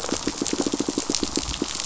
{"label": "biophony, pulse", "recorder": "SoundTrap 500"}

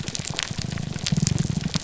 {"label": "biophony, grouper groan", "recorder": "SoundTrap 300"}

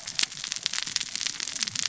{"label": "biophony, cascading saw", "recorder": "SoundTrap 600 or HydroMoth"}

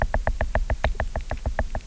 {"label": "biophony, knock", "recorder": "SoundTrap 300"}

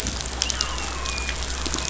{"label": "biophony, dolphin", "recorder": "SoundTrap 500"}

